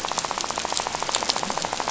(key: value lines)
label: biophony, rattle
recorder: SoundTrap 500